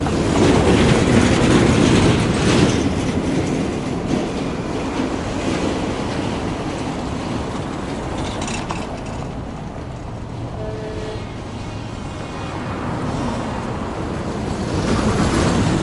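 Distant traffic sounds with a low, continuous engine hum. 0:00.0 - 0:05.7
A van or small truck passes by with a faint mechanical rattle. 0:06.0 - 0:10.3
Trucks honking at each other on the highway. 0:10.2 - 0:14.0
A vehicle engine fades away as it moves off. 0:13.9 - 0:15.8

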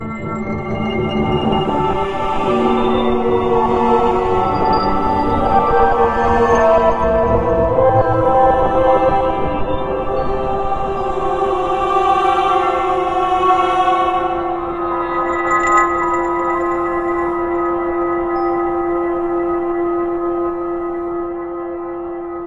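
Artificial sounds vibrate unevenly. 0:00.0 - 0:16.0
Artificial vibrations sound steadily and gradually become quieter. 0:16.0 - 0:22.5

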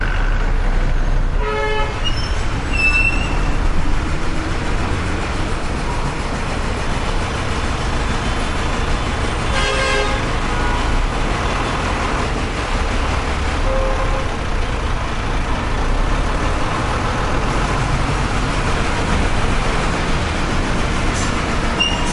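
Heavy traffic passes continuously on a busy street. 0:00.0 - 0:22.1
A vehicle horn honks on a busy street. 0:01.4 - 0:01.9
Metal squeaks loudly. 0:02.1 - 0:03.4
A vehicle horn honks twice on a busy street. 0:09.6 - 0:10.6
A car horn honks in the distance on a busy street. 0:10.5 - 0:11.0
A car horn honks in the distance on a busy street. 0:13.7 - 0:14.2
A metallic object clanks in the background on a busy street. 0:21.1 - 0:21.3
Metal squeaks in the background on a busy street. 0:21.7 - 0:22.1

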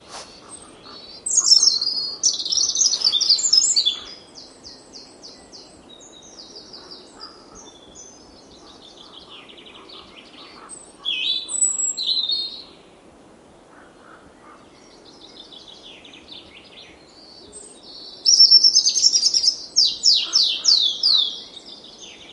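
Birds singing quietly in the background. 0:00.0 - 0:11.0
A bird chirps in a high-pitched and rhythmic manner. 0:01.2 - 0:04.2
A bird chirps in a high-pitched and rhythmic manner. 0:11.0 - 0:12.7
Birds singing quietly in the background. 0:15.1 - 0:22.3
A bird chirps in a high-pitched and rhythmic manner. 0:18.2 - 0:21.4

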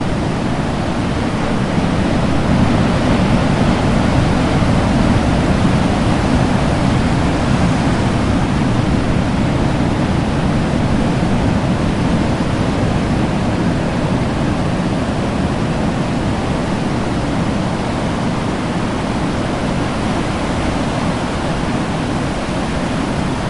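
Constant, calm ambient sound of the open sea gently resonating in the distance. 0:00.0 - 0:23.5

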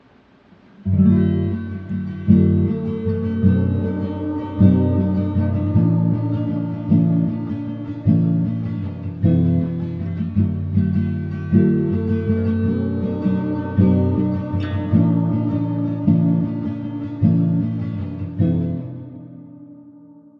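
A guitar plays a rhythmic pattern. 0:00.0 - 0:20.4
A woman is singing calmly in a steady pattern. 0:02.8 - 0:09.2
A woman is singing calmly in a steady pattern. 0:12.0 - 0:18.5

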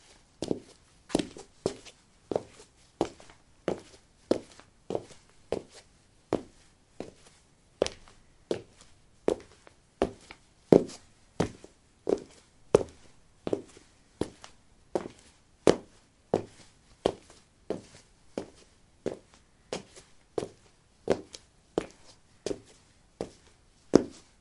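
Footsteps with a loud, clear, and full sound. 0:00.0 - 0:24.4

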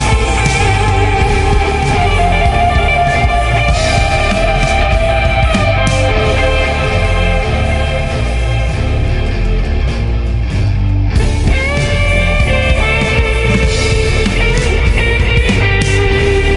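A drum is played rhythmically. 0:00.0 - 0:16.6
An electric guitar is played along with a bass guitar and drums. 0:00.0 - 0:16.5
A bass guitar, an electric guitar, and a drum playing together. 0:00.0 - 0:16.6

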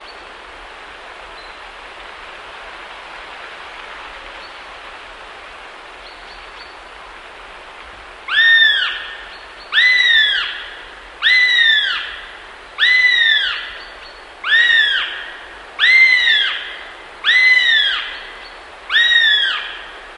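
Static noise hissing outdoors. 0:00.0 - 0:20.2
A bird chirps. 0:00.1 - 0:00.3
A bird chirps. 0:01.3 - 0:01.6
A bird chirps. 0:04.4 - 0:04.6
A bird chirps. 0:06.1 - 0:06.8
A bird caws loudly outdoors. 0:08.3 - 0:09.1
A bird chirps. 0:09.3 - 0:09.7
A bird caws loudly outdoors. 0:09.7 - 0:10.6
A bird caws loudly outdoors. 0:11.2 - 0:12.1
A bird caws loudly outdoors. 0:12.8 - 0:13.7
A bird chirps. 0:13.5 - 0:14.2
A bird caws loudly outdoors. 0:14.4 - 0:15.2
A bird caws loudly outdoors. 0:15.8 - 0:16.6
A bird caws loudly outdoors. 0:17.2 - 0:18.1
A bird chirps. 0:18.1 - 0:18.7
A bird caws loudly outdoors. 0:18.9 - 0:19.7

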